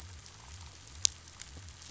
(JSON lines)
{"label": "biophony", "recorder": "SoundTrap 500"}